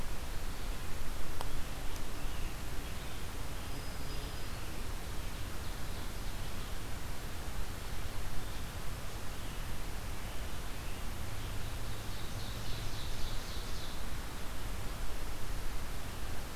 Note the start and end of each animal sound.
1.2s-4.4s: Scarlet Tanager (Piranga olivacea)
3.5s-4.8s: Black-throated Green Warbler (Setophaga virens)
4.6s-6.4s: Ovenbird (Seiurus aurocapilla)
11.3s-14.1s: Ovenbird (Seiurus aurocapilla)

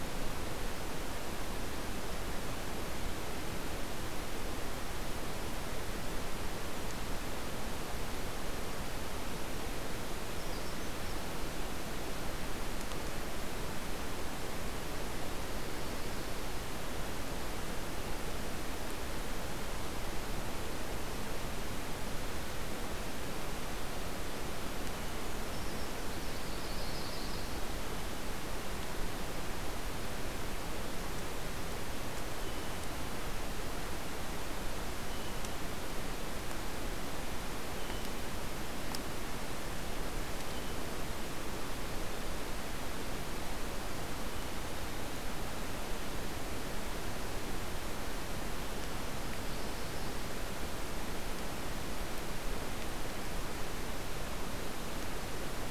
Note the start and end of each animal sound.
10.1s-11.3s: Brown Creeper (Certhia americana)
25.1s-26.3s: Brown Creeper (Certhia americana)
26.2s-27.6s: Yellow-rumped Warbler (Setophaga coronata)
32.2s-40.9s: Blue Jay (Cyanocitta cristata)

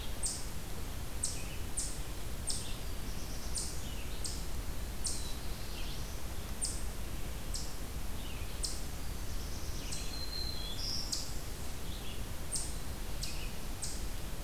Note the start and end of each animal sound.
0.0s-14.4s: Eastern Chipmunk (Tamias striatus)
0.0s-14.4s: Red-eyed Vireo (Vireo olivaceus)
2.7s-4.1s: Black-throated Blue Warbler (Setophaga caerulescens)
4.8s-6.5s: Black-throated Blue Warbler (Setophaga caerulescens)
8.7s-10.5s: Black-throated Blue Warbler (Setophaga caerulescens)
9.6s-11.2s: Black-throated Green Warbler (Setophaga virens)

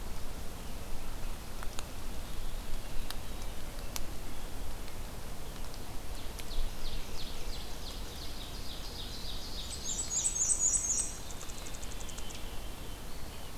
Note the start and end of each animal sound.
6.4s-10.5s: Ovenbird (Seiurus aurocapilla)
9.6s-11.3s: Black-and-white Warbler (Mniotilta varia)
10.8s-13.6s: Veery (Catharus fuscescens)
11.1s-12.4s: unidentified call

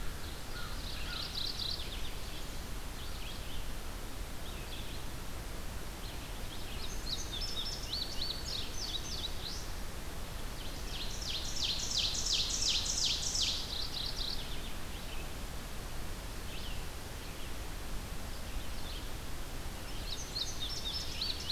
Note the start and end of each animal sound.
0.0s-1.4s: American Crow (Corvus brachyrhynchos)
0.0s-21.5s: Red-eyed Vireo (Vireo olivaceus)
0.7s-2.1s: Mourning Warbler (Geothlypis philadelphia)
6.5s-9.7s: Indigo Bunting (Passerina cyanea)
10.5s-13.8s: Ovenbird (Seiurus aurocapilla)
13.4s-14.8s: Mourning Warbler (Geothlypis philadelphia)
19.9s-21.5s: Indigo Bunting (Passerina cyanea)

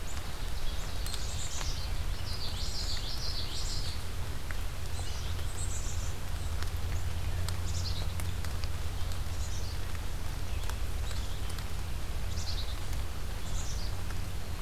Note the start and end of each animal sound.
0.0s-1.8s: Ovenbird (Seiurus aurocapilla)
1.0s-2.0s: Black-capped Chickadee (Poecile atricapillus)
2.1s-4.1s: Common Yellowthroat (Geothlypis trichas)
2.3s-3.1s: Black-capped Chickadee (Poecile atricapillus)
4.9s-6.2s: Black-capped Chickadee (Poecile atricapillus)
7.5s-8.2s: Black-capped Chickadee (Poecile atricapillus)
9.1s-9.9s: Black-capped Chickadee (Poecile atricapillus)
11.1s-11.5s: Black-capped Chickadee (Poecile atricapillus)
12.2s-12.9s: Black-capped Chickadee (Poecile atricapillus)
13.4s-14.0s: Black-capped Chickadee (Poecile atricapillus)

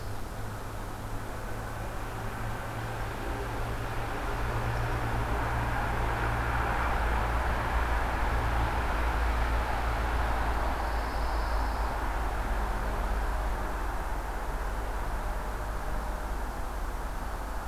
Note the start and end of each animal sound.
10.5s-11.9s: Pine Warbler (Setophaga pinus)

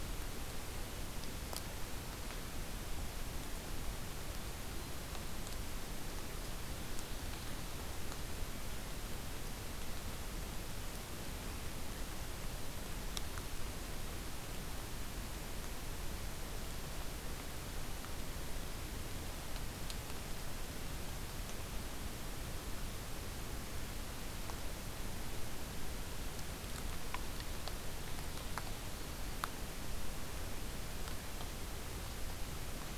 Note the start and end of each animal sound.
6.3s-8.1s: Ovenbird (Seiurus aurocapilla)

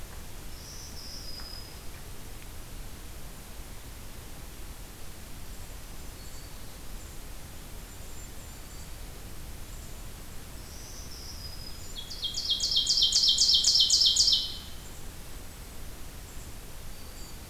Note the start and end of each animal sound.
0.4s-2.1s: Black-throated Green Warbler (Setophaga virens)
6.0s-6.6s: Black-throated Green Warbler (Setophaga virens)
7.5s-9.0s: Golden-crowned Kinglet (Regulus satrapa)
10.5s-12.1s: Black-throated Green Warbler (Setophaga virens)
11.8s-14.7s: Ovenbird (Seiurus aurocapilla)
16.8s-17.5s: Black-throated Green Warbler (Setophaga virens)

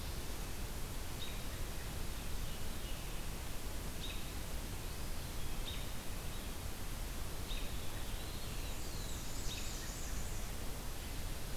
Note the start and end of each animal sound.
1.2s-1.4s: American Robin (Turdus migratorius)
1.9s-3.3s: Veery (Catharus fuscescens)
3.9s-4.2s: American Robin (Turdus migratorius)
5.5s-5.8s: American Robin (Turdus migratorius)
7.4s-7.7s: American Robin (Turdus migratorius)
7.9s-8.6s: Eastern Wood-Pewee (Contopus virens)
8.6s-10.5s: Black-and-white Warbler (Mniotilta varia)
9.4s-9.6s: American Robin (Turdus migratorius)

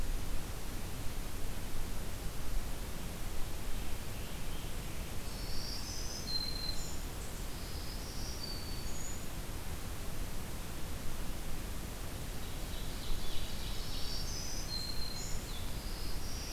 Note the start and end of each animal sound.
5.2s-9.4s: Black-throated Green Warbler (Setophaga virens)
12.3s-14.2s: Ovenbird (Seiurus aurocapilla)
13.8s-15.4s: Black-throated Green Warbler (Setophaga virens)
15.4s-16.5s: Black-throated Blue Warbler (Setophaga caerulescens)

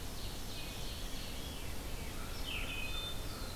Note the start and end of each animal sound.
0.0s-1.8s: Ovenbird (Seiurus aurocapilla)
0.0s-3.6s: Red-eyed Vireo (Vireo olivaceus)
1.9s-3.6s: American Crow (Corvus brachyrhynchos)
2.7s-3.2s: Wood Thrush (Hylocichla mustelina)
3.1s-3.6s: Black-throated Blue Warbler (Setophaga caerulescens)

